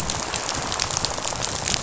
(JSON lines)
{"label": "biophony, rattle", "recorder": "SoundTrap 500"}